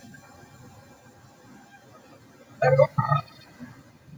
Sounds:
Laughter